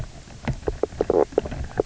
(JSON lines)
{"label": "biophony, knock croak", "recorder": "SoundTrap 300"}